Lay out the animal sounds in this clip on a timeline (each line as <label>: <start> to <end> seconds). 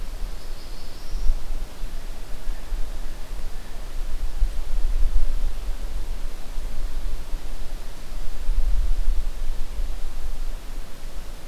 Black-throated Blue Warbler (Setophaga caerulescens): 0.0 to 1.4 seconds